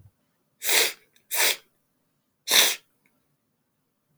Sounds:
Sniff